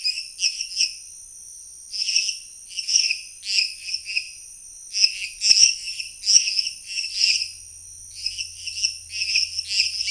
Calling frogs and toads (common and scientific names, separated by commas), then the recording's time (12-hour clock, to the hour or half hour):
lesser tree frog (Dendropsophus minutus)
~9pm